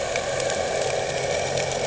{"label": "anthrophony, boat engine", "recorder": "HydroMoth"}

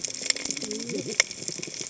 {"label": "biophony, cascading saw", "recorder": "HydroMoth"}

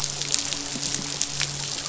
{"label": "biophony", "recorder": "SoundTrap 500"}
{"label": "biophony, midshipman", "recorder": "SoundTrap 500"}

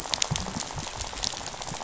{"label": "biophony, rattle", "recorder": "SoundTrap 500"}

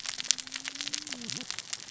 {"label": "biophony, cascading saw", "recorder": "SoundTrap 600 or HydroMoth"}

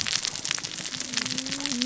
{"label": "biophony, cascading saw", "recorder": "SoundTrap 600 or HydroMoth"}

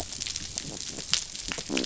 {"label": "biophony", "recorder": "SoundTrap 500"}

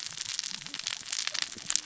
{"label": "biophony, cascading saw", "recorder": "SoundTrap 600 or HydroMoth"}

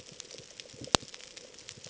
{"label": "ambient", "recorder": "HydroMoth"}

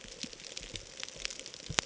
{"label": "ambient", "recorder": "HydroMoth"}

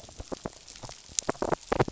{"label": "biophony", "recorder": "SoundTrap 500"}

